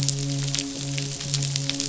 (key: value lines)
label: biophony, midshipman
recorder: SoundTrap 500